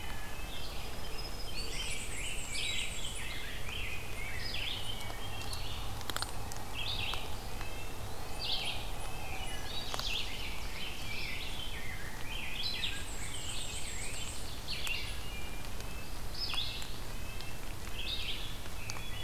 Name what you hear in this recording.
Red-eyed Vireo, Northern Parula, Rose-breasted Grosbeak, Black-and-white Warbler, Wood Thrush, Eastern Wood-Pewee, Red-breasted Nuthatch, Ovenbird